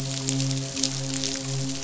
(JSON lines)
{"label": "biophony, midshipman", "recorder": "SoundTrap 500"}